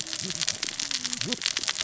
{"label": "biophony, cascading saw", "recorder": "SoundTrap 600 or HydroMoth"}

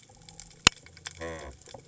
{"label": "biophony", "recorder": "HydroMoth"}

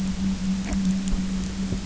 {"label": "anthrophony, boat engine", "recorder": "SoundTrap 300"}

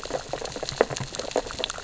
{"label": "biophony, sea urchins (Echinidae)", "recorder": "SoundTrap 600 or HydroMoth"}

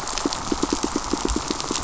{"label": "biophony, pulse", "recorder": "SoundTrap 500"}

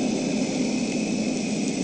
{"label": "anthrophony, boat engine", "recorder": "HydroMoth"}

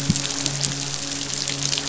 {"label": "biophony", "recorder": "SoundTrap 500"}
{"label": "biophony, midshipman", "recorder": "SoundTrap 500"}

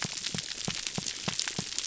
{"label": "biophony", "recorder": "SoundTrap 300"}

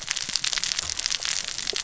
{"label": "biophony, cascading saw", "recorder": "SoundTrap 600 or HydroMoth"}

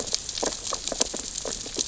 {"label": "biophony, sea urchins (Echinidae)", "recorder": "SoundTrap 600 or HydroMoth"}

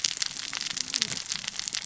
{"label": "biophony, cascading saw", "recorder": "SoundTrap 600 or HydroMoth"}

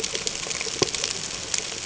{"label": "ambient", "recorder": "HydroMoth"}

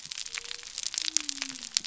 {"label": "biophony", "recorder": "SoundTrap 300"}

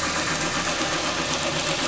{"label": "anthrophony, boat engine", "recorder": "SoundTrap 500"}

